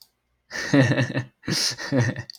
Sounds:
Laughter